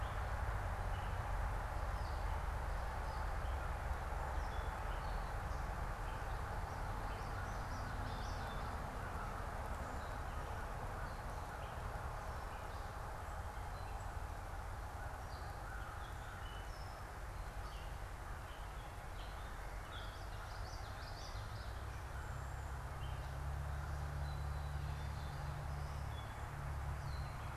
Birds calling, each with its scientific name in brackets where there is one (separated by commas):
Black-capped Chickadee (Poecile atricapillus), Common Yellowthroat (Geothlypis trichas), Gray Catbird (Dumetella carolinensis)